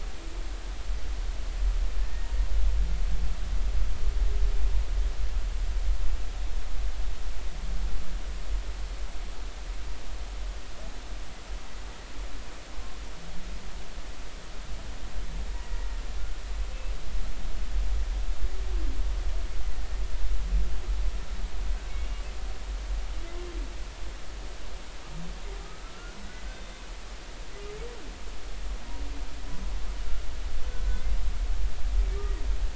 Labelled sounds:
22.0	22.2	humpback whale, 2.8 to 2.9 kHz
26.5	26.8	humpback whale, 3.6 to 3.7 kHz

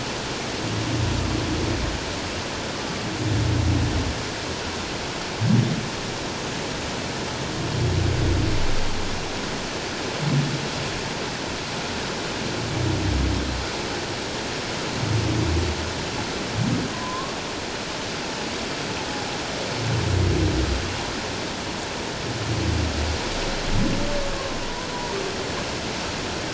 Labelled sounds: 16.9	17.4	humpback whale, 0.94 to 1.2 kHz
24.6	25.2	humpback whale, 0.88 to 1.1 kHz

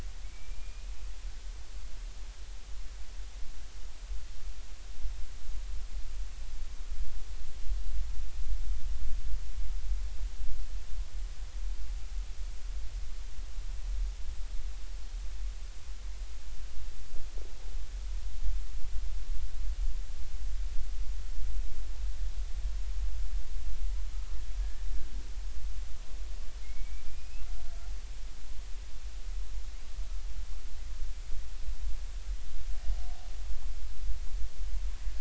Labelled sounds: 0.2	0.9	killer whale, Bigg's (transient), 2.2 to 2.6 kHz
24.6	24.9	killer whale, Bigg's (transient), 1.6 to 1.9 kHz
26.6	27.5	killer whale, Bigg's (transient), 2.1 to 2.8 kHz

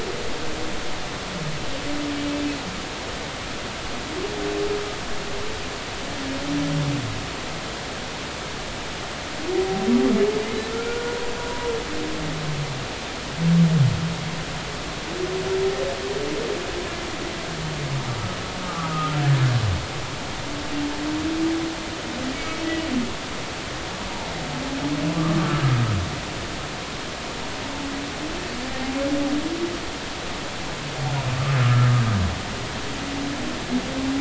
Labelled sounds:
10.7	11.2	humpback whale, 1.3 to 1.5 kHz
18.6	19.2	humpback whale, 1.1 to 1.4 kHz
22.3	22.6	humpback whale, 2.2 to 2.3 kHz
31.6	31.9	humpback whale, 1.1 to 1.4 kHz

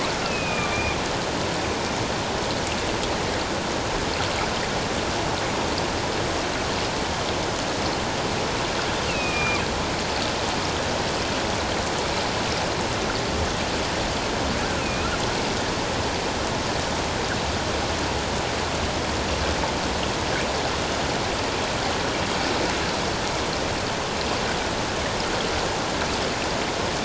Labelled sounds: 0.2	1.0	killer whale, northern resident, A clan, AA subclan, call N04, 1.1 to 2.8 kHz
9.1	9.6	killer whale, northern resident, A clan, AA subclan, call N04, 1.2 to 2.9 kHz
14.8	15.1	killer whale, northern resident, A clan, AA subclan, call N04, 2.4 to 2.6 kHz

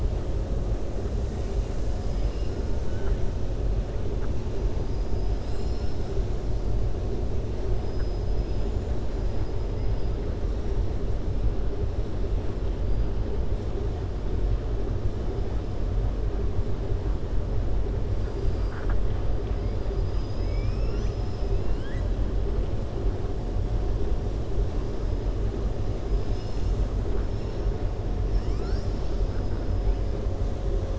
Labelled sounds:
7.8	9.0	killer whale, 5.0 to 7.8 kHz
21.4	22.1	killer whale, 1.6 to 4.3 kHz

